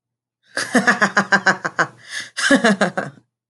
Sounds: Laughter